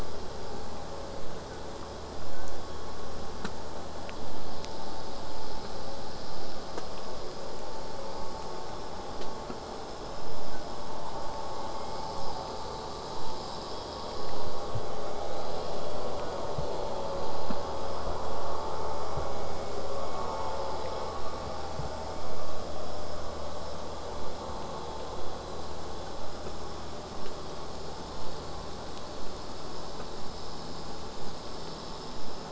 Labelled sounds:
11.7	12.3	killer whale, southern resident, J pod, 0.71 to 2.5 kHz

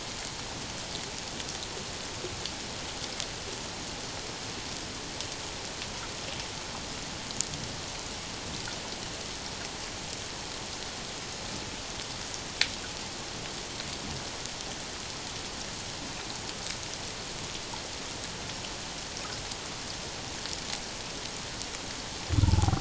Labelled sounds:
22.4	22.7	humpback whale, 0.78 to 1.0 kHz

